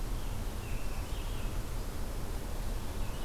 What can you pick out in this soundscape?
American Robin, Red-eyed Vireo